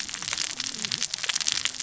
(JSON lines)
{"label": "biophony, cascading saw", "recorder": "SoundTrap 600 or HydroMoth"}